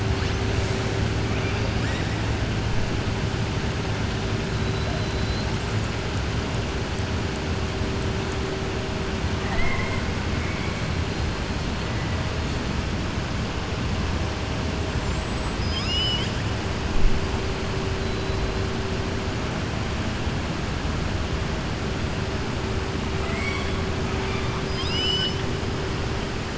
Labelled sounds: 4.6	5.5	killer whale, southern resident, 3.9 to 4.8 kHz
14.9	16.4	killer whale, southern resident, 2.1 to 8.0 kHz
23.1	23.8	killer whale, southern resident, 0.69 to 8.0 kHz
24.6	25.4	killer whale, southern resident, 1.6 to 7.6 kHz

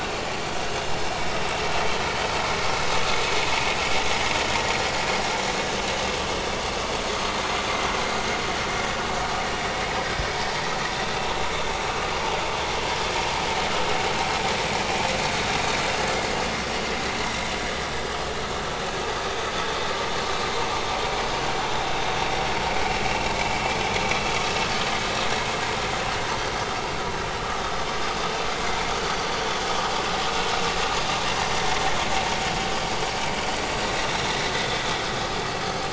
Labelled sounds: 0.3	0.6	vessel noise, 5.9 to 6.1 kHz
34.0	34.9	vessel noise, 3.4 to 5.8 kHz

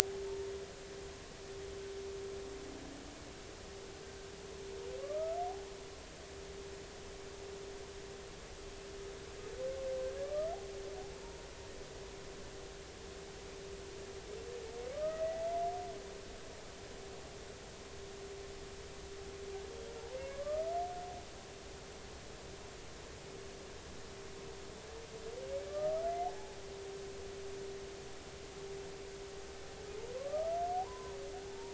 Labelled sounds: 6.0	6.4	humpback whale, 1.1 to 1.4 kHz
10.2	10.6	humpback whale, 1.1 to 1.4 kHz
11.2	11.5	humpback whale, 0.86 to 0.99 kHz
14.9	15.4	humpback whale, 1.1 to 2.0 kHz
20.3	20.7	humpback whale, 1.1 to 1.3 kHz
25.7	26.6	humpback whale, 0.80 to 1.3 kHz
30.2	31.2	humpback whale, 0.80 to 1.4 kHz
31.5	31.7	humpback whale, 0.80 to 0.99 kHz

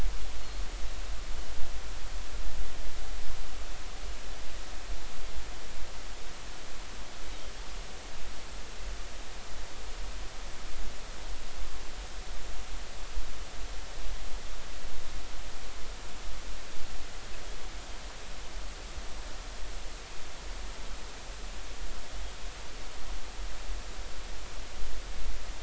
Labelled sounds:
0.4	0.6	Pacific white-sided dolphin, 4.2 to 4.4 kHz

